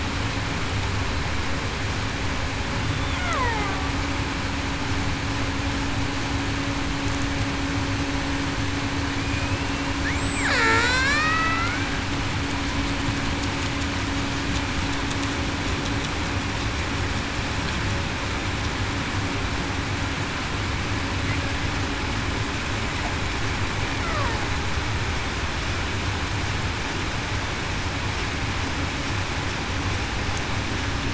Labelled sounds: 3.2	3.7	killer whale, Bigg's (transient), 0.40 to 1.5 kHz
9.2	10.9	killer whale, Bigg's (transient), 0.42 to 7.8 kHz

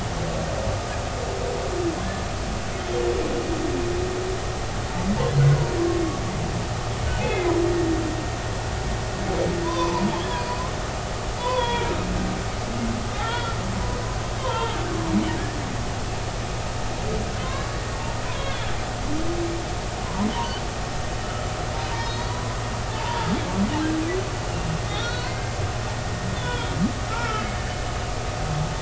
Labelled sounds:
5.5	5.7	humpback whale, 0.90 to 1.1 kHz
7.2	7.6	humpback whale, 2.0 to 2.6 kHz
9.6	10.6	humpback whale, 0.86 to 5.1 kHz
11.4	11.9	humpback whale, 0.90 to 3.5 kHz
13.2	13.6	humpback whale, 0.80 to 3.5 kHz
14.4	14.8	humpback whale, 0.83 to 3.4 kHz
17.4	18.6	humpback whale, 0.93 to 2.3 kHz
21.2	23.3	humpback whale, 0.83 to 5.3 kHz
24.9	25.6	humpback whale, 1.3 to 4.5 kHz
26.4	27.5	humpback whale, 1.2 to 3.6 kHz

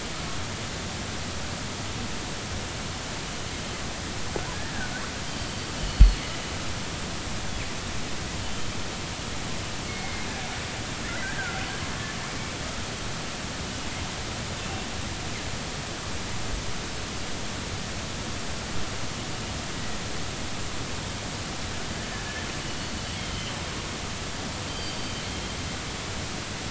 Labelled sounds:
5.3	6.2	killer whale, northern resident, G clan, GG subclan, call N23ii, 2.9 to 4.8 kHz
9.9	10.3	killer whale, northern resident, G clan, call N24ii, 2.0 to 2.2 kHz
11.2	11.7	killer whale, northern resident, R clan, call N33, 1.3 to 1.8 kHz
14.6	14.9	killer whale, northern resident, G clan, call N24i, 2.6 to 2.8 kHz
22.7	23.5	killer whale, northern resident, G clan, GG subclan, call N23ii, 2.9 to 4.5 kHz
24.7	25.1	killer whale, northern resident, G clan, GG subclan, call N23ii, 3.0 to 4.8 kHz

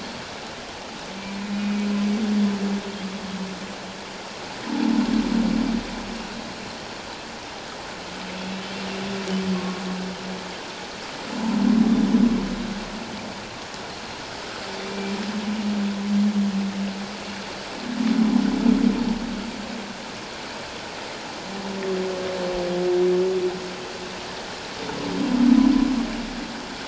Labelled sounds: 1.5	1.9	humpback whale, 2.4 to 2.5 kHz
9.5	9.8	humpback whale, 1.0 to 1.2 kHz
13.9	14.2	Pacific white-sided dolphin, 4.1 to 4.4 kHz
14.9	15.1	humpback whale, 2.3 to 2.4 kHz

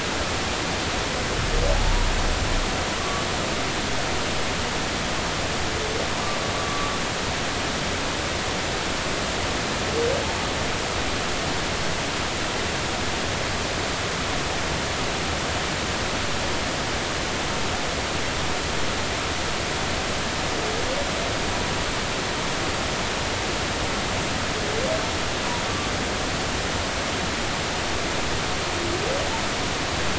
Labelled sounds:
1.7	2.1	humpback whale, 0.80 to 1.0 kHz
3.0	3.2	humpback whale, 1.1 to 1.2 kHz
6.6	6.9	humpback whale, 1.1 to 1.2 kHz
25.6	25.9	humpback whale, 1.1 to 1.2 kHz

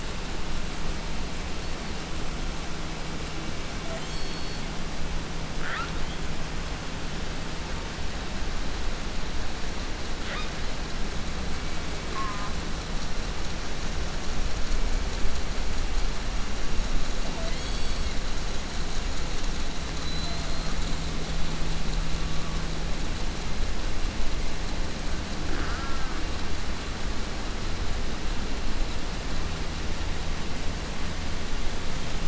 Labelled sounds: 1.2	2.3	killer whale, 0.43 to 8.0 kHz
3.6	5.0	killer whale, southern resident, 0.34 to 8.0 kHz
5.5	6.3	killer whale, 0.52 to 6.7 kHz
10.0	10.7	killer whale, southern resident, 0.18 to 6.2 kHz
12.1	12.5	killer whale, southern resident, J pod, call S04, 0.75 to 4.2 kHz
17.3	18.3	killer whale, southern resident, J pod, call S44, 0.38 to 8.0 kHz
20.0	21.0	killer whale, southern resident, 0.39 to 8.0 kHz
21.9	22.9	killer whale, 0.63 to 3.1 kHz
25.2	26.4	killer whale, 0.41 to 3.3 kHz

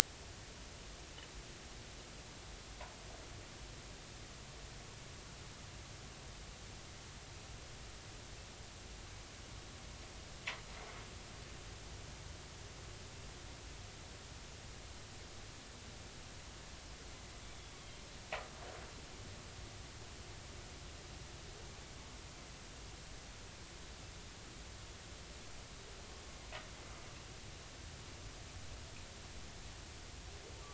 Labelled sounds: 17.4	17.7	humpback whale, 3.4 to 3.6 kHz

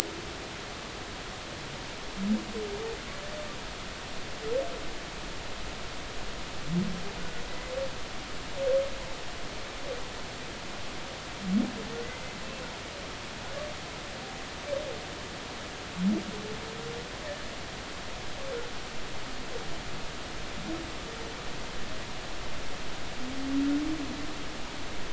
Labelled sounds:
7.2	7.4	humpback whale, 1.4 to 1.6 kHz
12.0	12.3	humpback whale, 1.9 to 2.1 kHz

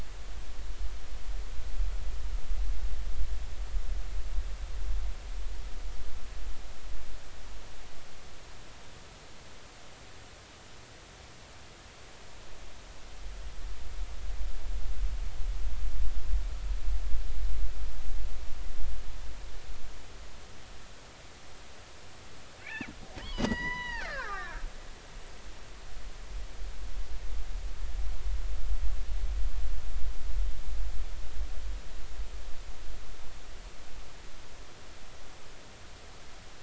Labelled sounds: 22.6	24.7	killer whale, Bigg's (transient), 0.80 to 6.0 kHz

